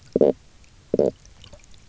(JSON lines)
{"label": "biophony, stridulation", "recorder": "SoundTrap 300"}